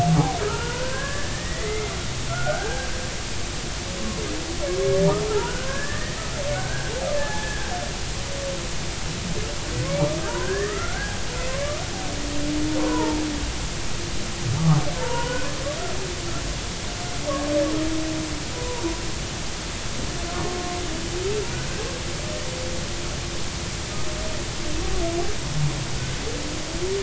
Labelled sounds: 0.4	1.9	humpback whale, 0.86 to 2.2 kHz
2.3	2.9	humpback whale, 1.3 to 1.7 kHz
4.0	4.2	humpback whale, 0.93 to 1.2 kHz
5.3	7.7	humpback whale, 0.80 to 1.9 kHz
9.8	11.8	humpback whale, 0.80 to 2.4 kHz
12.8	13.2	humpback whale, 0.86 to 1.1 kHz
15.0	15.5	humpback whale, 0.86 to 3.0 kHz
18.5	18.8	humpback whale, 0.90 to 1.1 kHz
20.5	20.8	humpback whale, 1.0 to 1.1 kHz

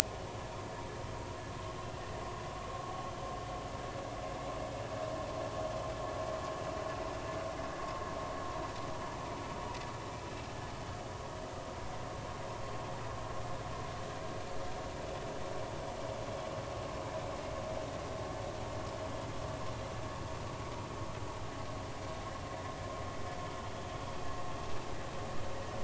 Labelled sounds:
2.6	2.9	vessel noise, 1.0 to 1.2 kHz

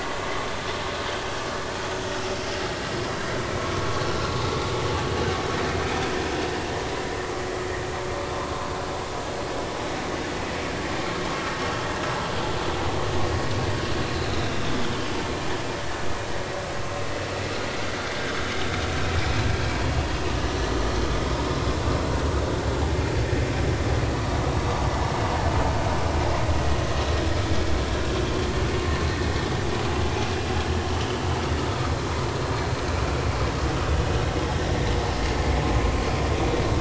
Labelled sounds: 8.4	8.7	vessel noise, 0.86 to 1.2 kHz
14.0	14.3	vessel noise, 4.0 to 4.3 kHz

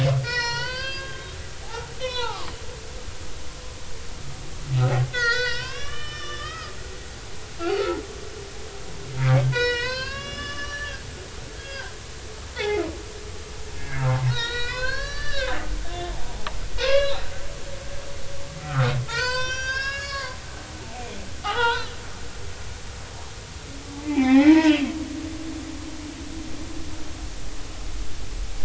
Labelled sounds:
0.2	1.3	humpback whale, 0.90 to 5.9 kHz
1.6	2.5	humpback whale, 0.80 to 4.2 kHz
5.1	6.7	humpback whale, 0.90 to 6.1 kHz
7.6	8.0	humpback whale, 0.83 to 1.5 kHz
9.5	11.9	humpback whale, 0.90 to 5.8 kHz
12.5	12.8	humpback whale, 0.80 to 3.7 kHz
13.8	15.6	humpback whale, 0.80 to 6.3 kHz
16.8	17.3	humpback whale, 0.99 to 5.2 kHz
18.6	22.0	humpback whale, 0.80 to 7.7 kHz
24.1	24.9	humpback whale, 0.80 to 5.2 kHz

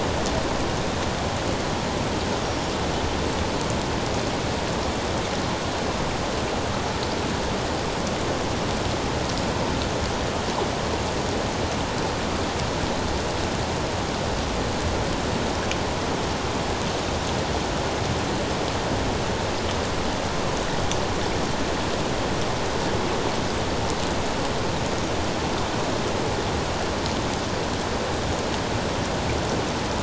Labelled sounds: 2.4	2.7	killer whale, 5.5 to 5.7 kHz

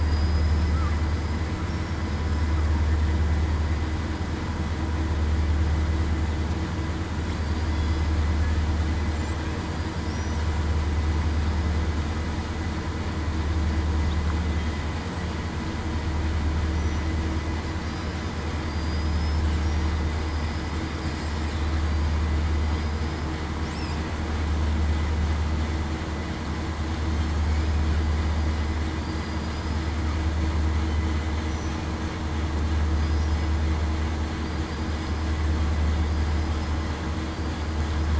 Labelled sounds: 0.0	0.7	killer whale, southern resident, 4.8 to 8.0 kHz
1.7	2.0	killer whale, southern resident, 5.4 to 5.6 kHz
18.6	19.4	killer whale, southern resident, 4.6 to 5.2 kHz
20.2	20.6	killer whale, southern resident, 5.0 to 5.2 kHz
22.7	23.4	killer whale, southern resident, 4.8 to 5.2 kHz
29.0	29.4	killer whale, southern resident, 4.6 to 4.9 kHz
32.9	33.3	killer whale, southern resident, 4.9 to 5.1 kHz

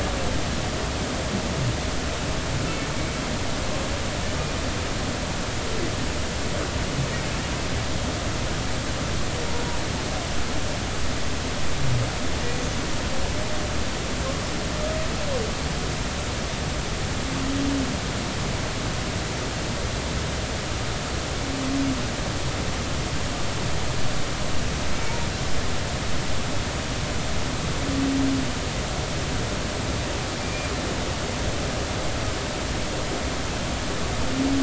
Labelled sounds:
30.4	30.7	humpback whale, 2.3 to 2.5 kHz

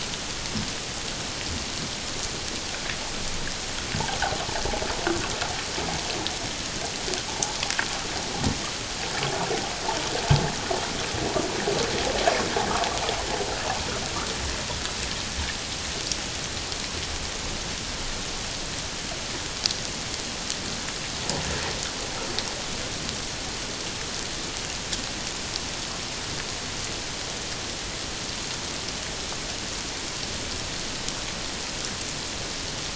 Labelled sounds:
7.3	7.6	water noise, 0.78 to 1.0 kHz

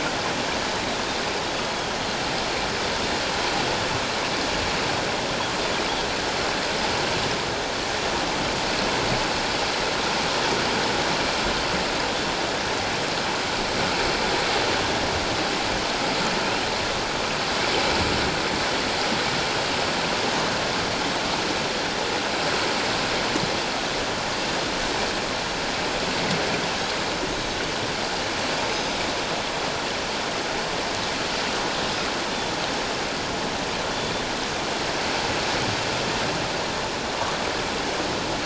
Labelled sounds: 28.7	29.0	Pacific white-sided dolphin, 3.7 to 6.3 kHz

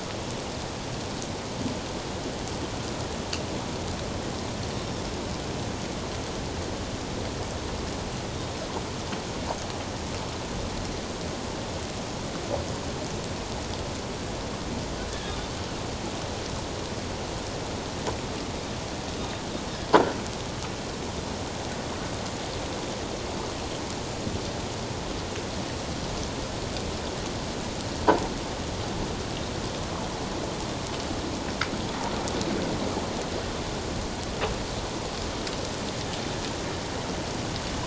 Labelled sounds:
4.7	5.0	Pacific white-sided dolphin, 5.4 to 5.7 kHz
19.2	19.4	Pacific white-sided dolphin, 3.6 to 3.8 kHz

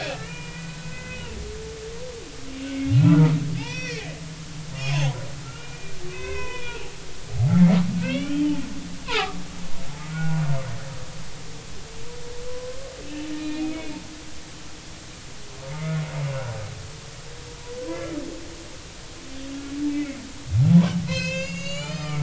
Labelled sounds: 0.1	1.4	humpback whale, 0.93 to 3.1 kHz
2.9	4.1	humpback whale, 1.2 to 6.1 kHz
5.4	6.8	humpback whale, 0.93 to 3.1 kHz
7.3	8.6	humpback whale, 0.80 to 3.5 kHz
9.0	9.4	humpback whale, 0.80 to 1.7 kHz
10.1	10.4	humpback whale, 1.4 to 1.5 kHz
12.5	13.8	humpback whale, 0.96 to 2.8 kHz
14.4	14.6	humpback whale, 3.9 to 4.1 kHz
17.9	18.2	humpback whale, 1.3 to 2.2 kHz
19.9	20.2	humpback whale, 1.9 to 2.4 kHz
20.7	22.2	humpback whale, 0.80 to 7.2 kHz

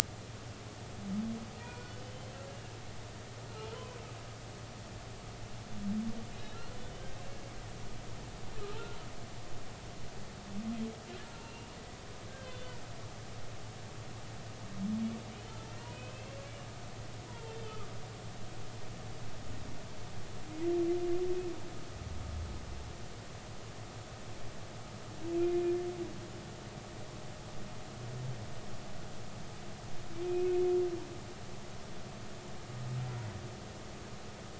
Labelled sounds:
1.6	2.0	humpback whale, 0.90 to 4.5 kHz
3.0	3.3	humpback whale, 3.0 to 3.2 kHz
6.3	6.6	humpback whale, 3.7 to 3.9 kHz
7.1	7.4	humpback whale, 2.6 to 2.8 kHz
11.3	11.7	humpback whale, 2.7 to 2.9 kHz
15.8	16.4	humpback whale, 2.5 to 3.1 kHz
17.3	17.9	humpback whale, 0.86 to 1.3 kHz
25.4	25.7	humpback whale, 2.4 to 2.5 kHz
30.2	30.7	humpback whale, 2.1 to 2.6 kHz

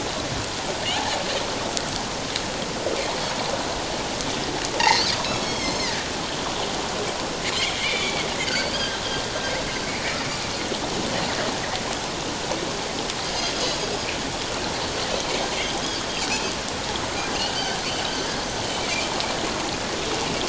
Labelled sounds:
4.8	5.9	Pacific white-sided dolphin, 1.8 to 6.5 kHz
7.8	9.0	Pacific white-sided dolphin, 1.5 to 4.9 kHz
17.3	17.8	Pacific white-sided dolphin, 1.4 to 3.1 kHz
18.8	19.1	Pacific white-sided dolphin, 2.0 to 2.6 kHz

